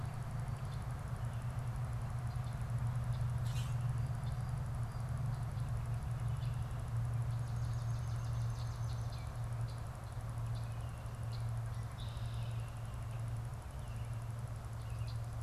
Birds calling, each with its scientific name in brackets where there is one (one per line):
Common Grackle (Quiscalus quiscula)
Red-winged Blackbird (Agelaius phoeniceus)
Swamp Sparrow (Melospiza georgiana)